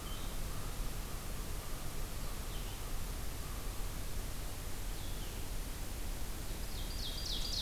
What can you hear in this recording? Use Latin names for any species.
Vireo solitarius, Corvus brachyrhynchos, Seiurus aurocapilla